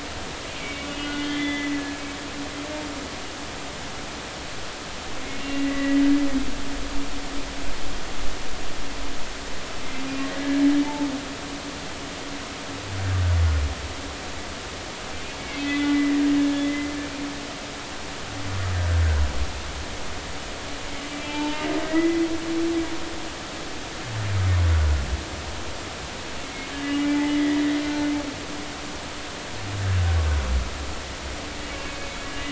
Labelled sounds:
0.6	1.8	humpback whale, 1.7 to 4.4 kHz
5.4	6.0	humpback whale, 1.9 to 2.8 kHz
10.4	11.1	humpback whale, 0.83 to 1.8 kHz
15.6	16.9	humpback whale, 1.8 to 3.5 kHz
18.8	19.0	humpback whale, 1.5 to 1.7 kHz
21.2	22.2	humpback whale, 0.83 to 3.3 kHz
24.7	25.0	humpback whale, 1.3 to 1.5 kHz
26.8	27.6	humpback whale, 1.9 to 2.9 kHz
27.8	28.1	humpback whale, 1.4 to 1.5 kHz

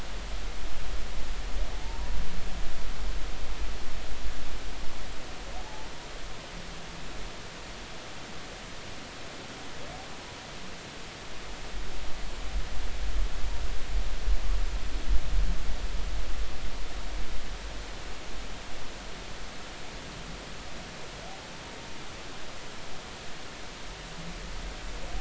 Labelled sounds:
1.8	2.1	humpback whale, 0.86 to 0.99 kHz
5.6	5.9	humpback whale, 0.80 to 0.96 kHz

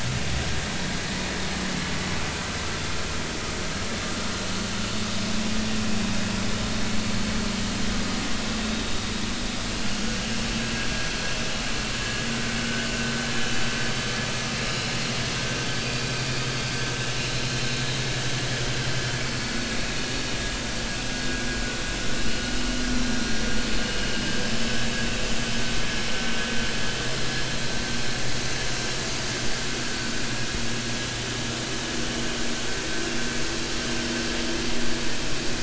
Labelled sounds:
9.9	10.2	vessel noise, 6.5 to 6.6 kHz
12.0	12.3	vessel noise, 1.6 to 1.8 kHz
15.7	16.0	vessel noise, 4.6 to 4.7 kHz
17.2	17.4	vessel noise, 3.9 to 4.2 kHz
19.2	19.6	vessel noise, 4.4 to 4.5 kHz
22.9	23.2	vessel noise, 4.0 to 4.1 kHz
24.6	24.8	vessel noise, 5.2 to 5.3 kHz

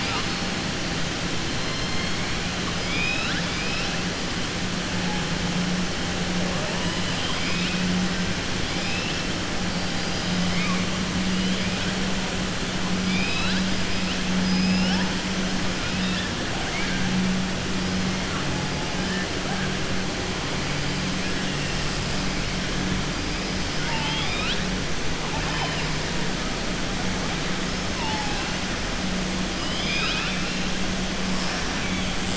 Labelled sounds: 7.0	7.8	killer whale, southern resident, 2.2 to 5.2 kHz
8.6	9.2	killer whale, southern resident, 2.3 to 5.4 kHz
13.0	13.7	killer whale, southern resident, 1.2 to 5.1 kHz
14.4	15.1	killer whale, southern resident, 4.7 to 5.5 kHz
23.7	24.6	killer whale, southern resident, 0.85 to 5.1 kHz
29.5	30.6	killer whale, southern resident, 1.3 to 5.4 kHz

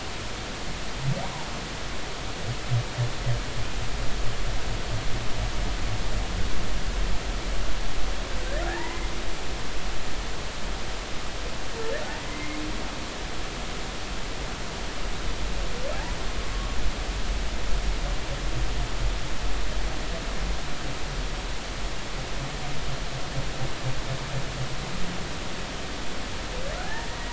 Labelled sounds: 8.7	9.1	humpback whale, 0.80 to 2.1 kHz
12.2	12.6	humpback whale, 2.0 to 2.2 kHz
16.5	16.8	humpback whale, 1.1 to 1.2 kHz
26.8	27.1	humpback whale, 0.80 to 0.96 kHz

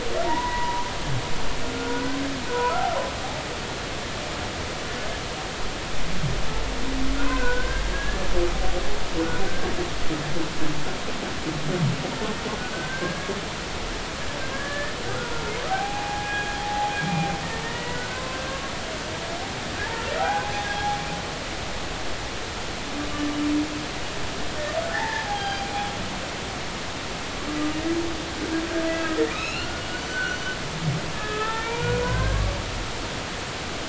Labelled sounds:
0.2	2.0	humpback whale, 0.86 to 2.0 kHz
2.5	2.8	humpback whale, 0.93 to 1.5 kHz
7.3	8.3	humpback whale, 1.4 to 1.8 kHz
12.7	13.3	humpback whale, 1.5 to 1.7 kHz
14.5	14.9	humpback whale, 1.6 to 1.9 kHz
15.7	18.7	humpback whale, 0.80 to 2.5 kHz
20.2	21.0	humpback whale, 0.80 to 0.90 kHz
24.9	25.6	humpback whale, 0.80 to 4.9 kHz
28.9	30.6	humpback whale, 1.3 to 6.0 kHz
31.1	32.6	humpback whale, 0.83 to 3.7 kHz

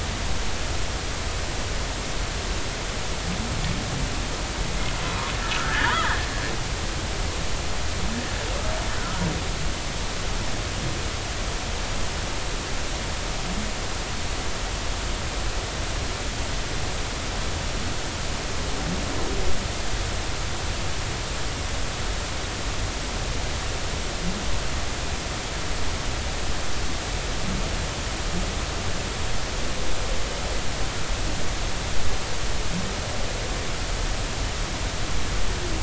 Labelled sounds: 5.6	6.3	humpback whale, 1.2 to 2.1 kHz

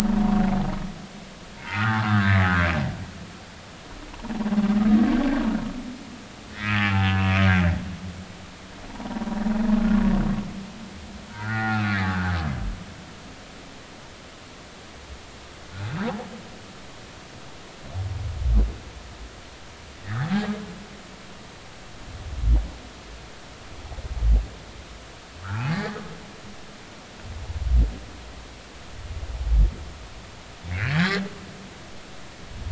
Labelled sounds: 1.6	2.4	humpback whale, 1.1 to 2.2 kHz
6.7	7.2	humpback whale, 0.80 to 3.0 kHz
8.9	9.2	humpback whale, 0.83 to 1.0 kHz
11.3	12.3	humpback whale, 0.80 to 2.1 kHz
20.0	20.5	humpback whale, 0.80 to 2.1 kHz
25.4	26.0	humpback whale, 0.80 to 4.7 kHz
30.7	31.2	humpback whale, 1.4 to 2.2 kHz

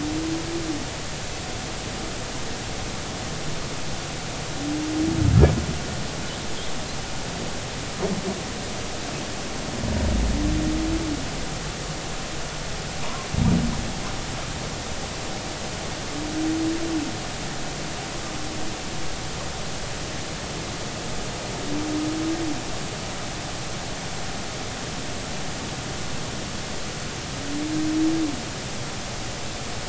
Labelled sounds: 13.0	13.3	humpback whale, 0.90 to 1.2 kHz

